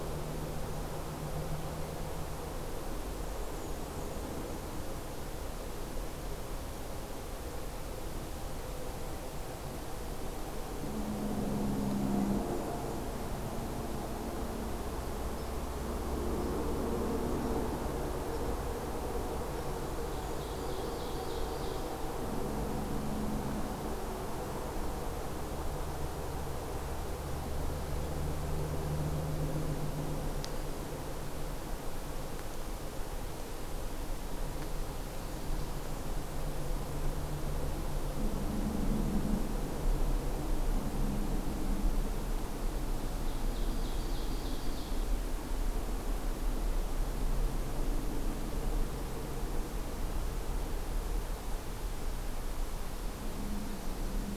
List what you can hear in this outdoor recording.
Bay-breasted Warbler, Hairy Woodpecker, Ovenbird